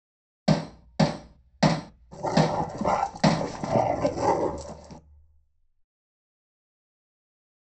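At 0.46 seconds, the sound of a hammer is heard. While that goes on, at 2.11 seconds, growling can be heard.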